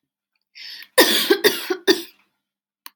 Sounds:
Cough